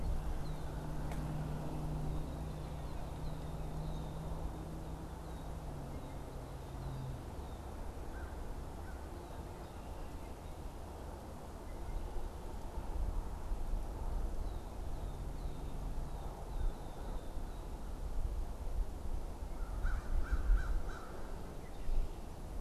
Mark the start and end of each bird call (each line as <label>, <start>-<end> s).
Red-winged Blackbird (Agelaius phoeniceus), 0.0-7.9 s
American Crow (Corvus brachyrhynchos), 8.1-9.3 s
American Crow (Corvus brachyrhynchos), 19.3-21.5 s